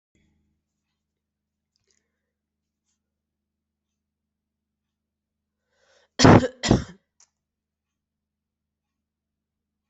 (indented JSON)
{
  "expert_labels": [
    {
      "quality": "good",
      "cough_type": "dry",
      "dyspnea": false,
      "wheezing": false,
      "stridor": false,
      "choking": false,
      "congestion": false,
      "nothing": true,
      "diagnosis": "healthy cough",
      "severity": "pseudocough/healthy cough"
    }
  ],
  "age": 29,
  "gender": "female",
  "respiratory_condition": true,
  "fever_muscle_pain": false,
  "status": "symptomatic"
}